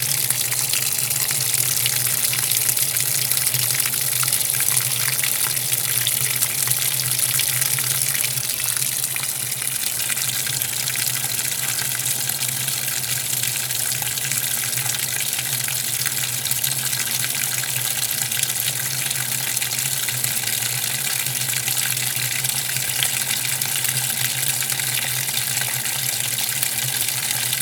Are animals making noise?
no